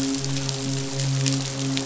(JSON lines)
{"label": "biophony, midshipman", "recorder": "SoundTrap 500"}